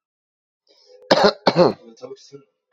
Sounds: Cough